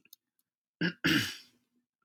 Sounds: Throat clearing